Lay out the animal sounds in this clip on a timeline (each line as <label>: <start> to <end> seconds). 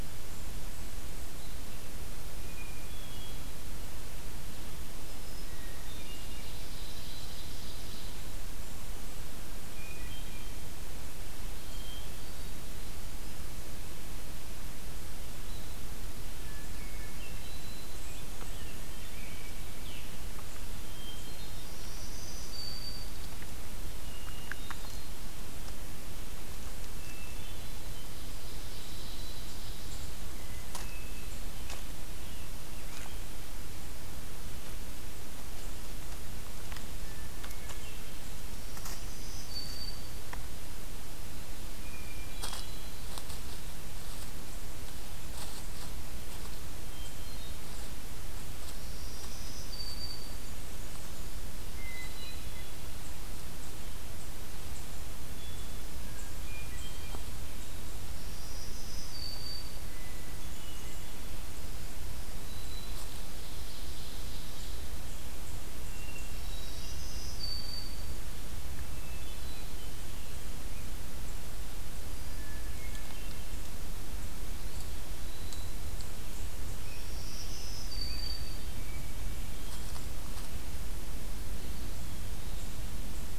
Blackburnian Warbler (Setophaga fusca): 0.0 to 1.3 seconds
Hermit Thrush (Catharus guttatus): 2.3 to 3.7 seconds
Black-throated Green Warbler (Setophaga virens): 4.7 to 5.6 seconds
Hermit Thrush (Catharus guttatus): 5.5 to 6.6 seconds
Ovenbird (Seiurus aurocapilla): 5.8 to 8.4 seconds
Hermit Thrush (Catharus guttatus): 9.7 to 10.5 seconds
Hermit Thrush (Catharus guttatus): 11.5 to 12.7 seconds
Hermit Thrush (Catharus guttatus): 16.3 to 17.6 seconds
Black-throated Green Warbler (Setophaga virens): 17.1 to 18.0 seconds
Blackburnian Warbler (Setophaga fusca): 17.4 to 19.0 seconds
Scarlet Tanager (Piranga olivacea): 17.9 to 20.2 seconds
Hermit Thrush (Catharus guttatus): 18.4 to 19.4 seconds
Hermit Thrush (Catharus guttatus): 20.8 to 21.8 seconds
Black-throated Green Warbler (Setophaga virens): 21.3 to 23.5 seconds
Hermit Thrush (Catharus guttatus): 24.0 to 25.2 seconds
Hermit Thrush (Catharus guttatus): 26.9 to 28.0 seconds
Ovenbird (Seiurus aurocapilla): 28.2 to 30.2 seconds
Hermit Thrush (Catharus guttatus): 30.2 to 31.5 seconds
Scarlet Tanager (Piranga olivacea): 31.8 to 33.2 seconds
Hermit Thrush (Catharus guttatus): 36.9 to 38.3 seconds
Black-throated Green Warbler (Setophaga virens): 38.2 to 40.6 seconds
Hermit Thrush (Catharus guttatus): 41.7 to 43.2 seconds
Hermit Thrush (Catharus guttatus): 46.7 to 47.9 seconds
Black-throated Green Warbler (Setophaga virens): 48.7 to 50.8 seconds
Blackburnian Warbler (Setophaga fusca): 49.8 to 51.4 seconds
Hermit Thrush (Catharus guttatus): 51.6 to 53.1 seconds
Hermit Thrush (Catharus guttatus): 55.3 to 57.3 seconds
Black-throated Green Warbler (Setophaga virens): 57.9 to 60.1 seconds
Hermit Thrush (Catharus guttatus): 59.8 to 61.3 seconds
Blackburnian Warbler (Setophaga fusca): 60.0 to 61.1 seconds
Black-throated Green Warbler (Setophaga virens): 61.5 to 63.2 seconds
Ovenbird (Seiurus aurocapilla): 63.1 to 64.9 seconds
Hermit Thrush (Catharus guttatus): 65.8 to 67.2 seconds
Black-throated Green Warbler (Setophaga virens): 66.1 to 68.3 seconds
Hermit Thrush (Catharus guttatus): 68.9 to 70.3 seconds
Hermit Thrush (Catharus guttatus): 72.3 to 73.6 seconds
Black-throated Green Warbler (Setophaga virens): 74.7 to 75.9 seconds
Scarlet Tanager (Piranga olivacea): 76.6 to 79.2 seconds
Black-throated Green Warbler (Setophaga virens): 76.8 to 79.0 seconds
Hermit Thrush (Catharus guttatus): 77.7 to 78.8 seconds
Eastern Wood-Pewee (Contopus virens): 81.6 to 82.6 seconds